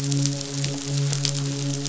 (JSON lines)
{"label": "biophony, midshipman", "recorder": "SoundTrap 500"}